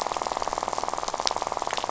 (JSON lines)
{"label": "biophony, rattle", "recorder": "SoundTrap 500"}